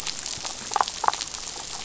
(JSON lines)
{"label": "biophony, damselfish", "recorder": "SoundTrap 500"}